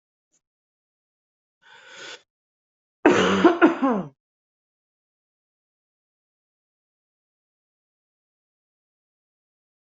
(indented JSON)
{
  "expert_labels": [
    {
      "quality": "good",
      "cough_type": "dry",
      "dyspnea": false,
      "wheezing": false,
      "stridor": false,
      "choking": false,
      "congestion": false,
      "nothing": true,
      "diagnosis": "lower respiratory tract infection",
      "severity": "mild"
    }
  ],
  "age": 38,
  "gender": "male",
  "respiratory_condition": false,
  "fever_muscle_pain": true,
  "status": "COVID-19"
}